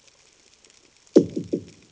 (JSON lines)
{"label": "anthrophony, bomb", "recorder": "HydroMoth"}